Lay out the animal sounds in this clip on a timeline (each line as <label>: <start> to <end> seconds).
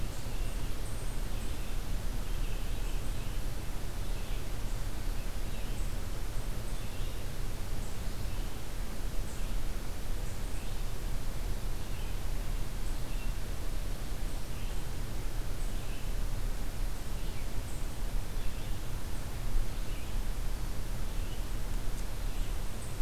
Red-eyed Vireo (Vireo olivaceus): 0.0 to 23.0 seconds